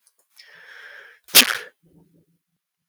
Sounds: Sneeze